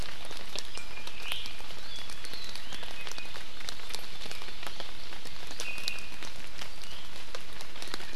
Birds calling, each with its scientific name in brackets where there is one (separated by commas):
Iiwi (Drepanis coccinea)